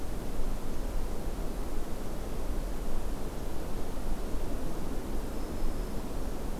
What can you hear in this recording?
Black-throated Green Warbler